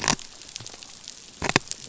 {"label": "biophony", "recorder": "SoundTrap 500"}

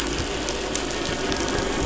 {"label": "anthrophony, boat engine", "recorder": "SoundTrap 500"}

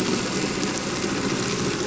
{"label": "anthrophony, boat engine", "recorder": "SoundTrap 300"}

